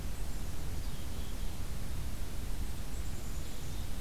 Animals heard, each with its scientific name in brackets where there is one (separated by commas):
Black-capped Chickadee (Poecile atricapillus)